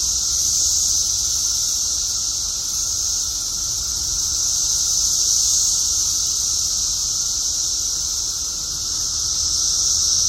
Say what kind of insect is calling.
cicada